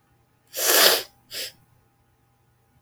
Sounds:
Sniff